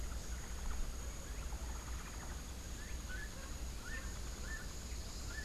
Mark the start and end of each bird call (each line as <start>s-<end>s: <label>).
0.0s-2.4s: Hoffmann's Woodpecker (Melanerpes hoffmannii)
2.7s-5.4s: Gray-headed Chachalaca (Ortalis cinereiceps)